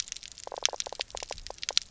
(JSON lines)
{"label": "biophony, knock croak", "recorder": "SoundTrap 300"}